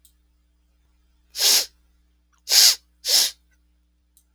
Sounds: Sniff